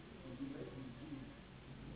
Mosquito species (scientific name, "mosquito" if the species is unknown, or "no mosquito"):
Anopheles gambiae s.s.